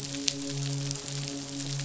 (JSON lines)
{"label": "biophony, midshipman", "recorder": "SoundTrap 500"}